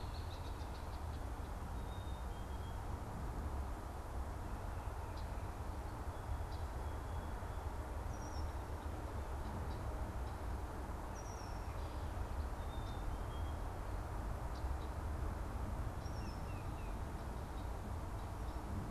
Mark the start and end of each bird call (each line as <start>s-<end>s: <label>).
0.0s-3.2s: Red-winged Blackbird (Agelaius phoeniceus)
1.7s-3.0s: Black-capped Chickadee (Poecile atricapillus)
5.0s-6.9s: Red-winged Blackbird (Agelaius phoeniceus)
8.0s-16.9s: Red-winged Blackbird (Agelaius phoeniceus)
12.6s-13.8s: Black-capped Chickadee (Poecile atricapillus)
15.9s-17.2s: Tufted Titmouse (Baeolophus bicolor)